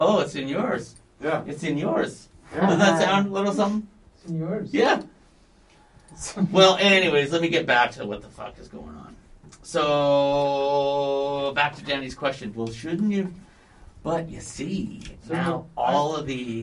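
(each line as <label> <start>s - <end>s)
One man asks another a question, and the other speaks briefly in English at a pleasant volume indoors. 0.0s - 16.6s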